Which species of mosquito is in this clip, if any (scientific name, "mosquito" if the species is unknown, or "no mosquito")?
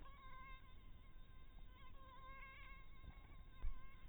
mosquito